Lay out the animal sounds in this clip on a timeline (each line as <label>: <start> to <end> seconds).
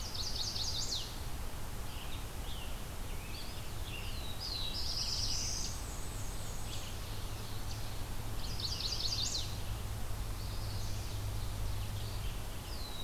Chestnut-sided Warbler (Setophaga pensylvanica): 0.0 to 1.1 seconds
Red-eyed Vireo (Vireo olivaceus): 1.8 to 13.0 seconds
Scarlet Tanager (Piranga olivacea): 1.8 to 4.2 seconds
Eastern Wood-Pewee (Contopus virens): 3.0 to 4.3 seconds
Black-throated Blue Warbler (Setophaga caerulescens): 3.5 to 5.8 seconds
Black-and-white Warbler (Mniotilta varia): 4.8 to 6.9 seconds
Eastern Chipmunk (Tamias striatus): 5.5 to 7.9 seconds
Ovenbird (Seiurus aurocapilla): 6.2 to 8.1 seconds
Chestnut-sided Warbler (Setophaga pensylvanica): 8.2 to 9.6 seconds
Eastern Wood-Pewee (Contopus virens): 10.2 to 11.0 seconds
Ovenbird (Seiurus aurocapilla): 10.3 to 12.2 seconds
Black-throated Blue Warbler (Setophaga caerulescens): 12.5 to 13.0 seconds